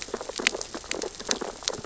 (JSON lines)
{"label": "biophony, sea urchins (Echinidae)", "recorder": "SoundTrap 600 or HydroMoth"}